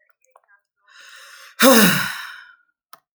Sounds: Sigh